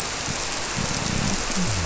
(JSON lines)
{"label": "biophony", "recorder": "SoundTrap 300"}